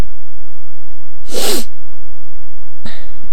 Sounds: Sniff